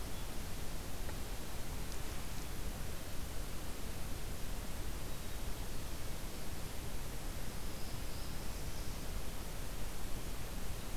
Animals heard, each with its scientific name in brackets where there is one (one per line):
Black-throated Blue Warbler (Setophaga caerulescens)